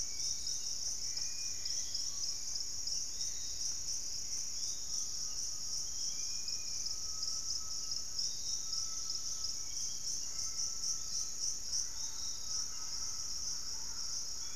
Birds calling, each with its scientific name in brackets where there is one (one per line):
Dusky-capped Greenlet (Pachysylvia hypoxantha)
Piratic Flycatcher (Legatus leucophaius)
Hauxwell's Thrush (Turdus hauxwelli)
Dusky-capped Flycatcher (Myiarchus tuberculifer)
Great Tinamou (Tinamus major)
Thrush-like Wren (Campylorhynchus turdinus)